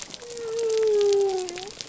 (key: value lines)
label: biophony
recorder: SoundTrap 300